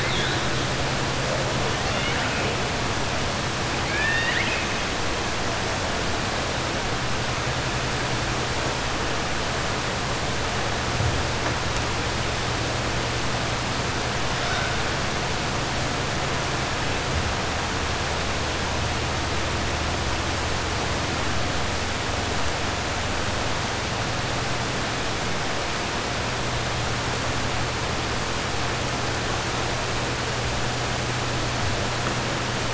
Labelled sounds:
1.8	2.5	killer whale, 1.4 to 3.6 kHz
3.8	4.7	killer whale, 1.6 to 4.6 kHz

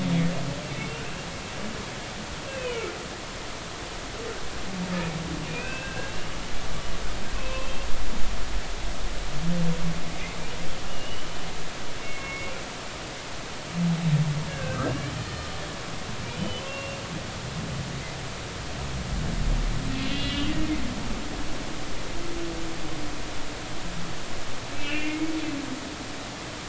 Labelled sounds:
0.6	1.1	humpback whale, 2.6 to 2.8 kHz
2.5	2.9	humpback whale, 2.2 to 2.8 kHz
5.5	7.9	humpback whale, 1.5 to 2.8 kHz
10.8	11.3	humpback whale, 2.8 to 3.0 kHz
12.0	12.5	humpback whale, 2.1 to 2.3 kHz
14.5	15.5	humpback whale, 1.5 to 4.3 kHz
16.4	16.6	humpback whale, 2.9 to 3.1 kHz
17.6	18.0	humpback whale, 2.7 to 2.8 kHz
20.0	20.5	humpback whale, 2.7 to 3.5 kHz
24.7	25.3	humpback whale, 2.0 to 3.0 kHz

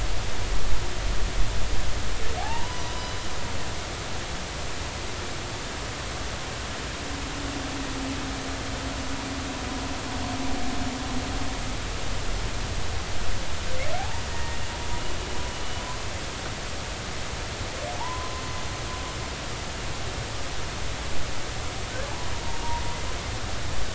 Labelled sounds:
2.4	3.2	humpback whale, 0.80 to 3.0 kHz
14.0	14.6	humpback whale, 0.80 to 2.0 kHz
17.9	18.4	humpback whale, 0.80 to 1.1 kHz

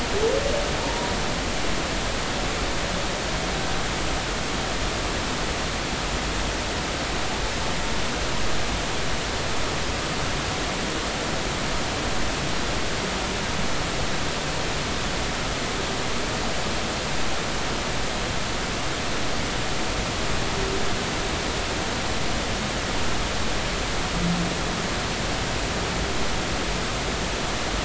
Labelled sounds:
1.8	2.1	humpback whale, 0.86 to 0.99 kHz

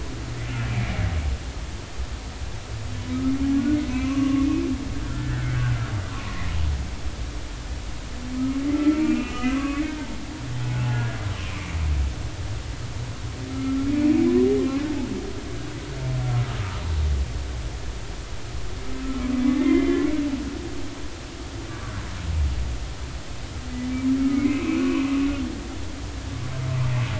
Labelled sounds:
3.9	4.5	humpback whale, 0.99 to 2.7 kHz
5.1	5.6	humpback whale, 1.5 to 1.9 kHz
6.5	6.9	humpback whale, 1.3 to 1.6 kHz
8.7	9.8	humpback whale, 1.0 to 3.1 kHz
10.6	11.8	humpback whale, 0.80 to 2.6 kHz
13.5	14.3	humpback whale, 1.2 to 2.6 kHz
16.5	16.8	humpback whale, 1.2 to 1.4 kHz
19.4	20.1	humpback whale, 1.9 to 3.2 kHz
24.2	25.1	humpback whale, 0.99 to 2.7 kHz

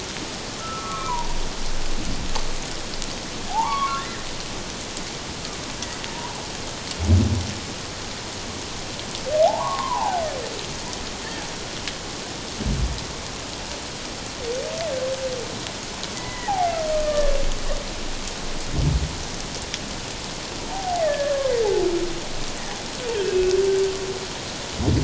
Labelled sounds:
0.6	1.4	humpback whale, 0.84 to 1.4 kHz
3.5	4.2	humpback whale, 0.78 to 2.3 kHz
6.1	6.4	humpback whale, 0.88 to 1.0 kHz
9.4	10.2	humpback whale, 0.78 to 1.2 kHz
16.2	16.7	humpback whale, 0.78 to 2.5 kHz
17.0	17.4	humpback whale, 1.1 to 1.9 kHz
20.6	21.5	humpback whale, 0.78 to 2.1 kHz
23.2	23.6	humpback whale, 2.5 to 2.7 kHz

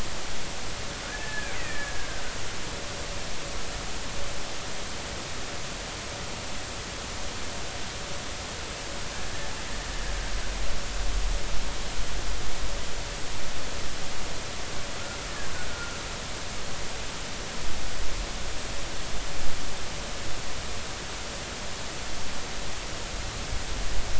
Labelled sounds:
1.0	2.2	killer whale, Bigg's (transient), 1.4 to 2.7 kHz
15.7	16.0	killer whale, Bigg's (transient), 1.3 to 1.5 kHz

